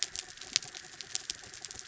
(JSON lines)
{"label": "anthrophony, mechanical", "recorder": "SoundTrap 300"}